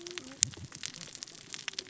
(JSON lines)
{"label": "biophony, cascading saw", "recorder": "SoundTrap 600 or HydroMoth"}